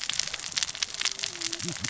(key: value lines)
label: biophony, cascading saw
recorder: SoundTrap 600 or HydroMoth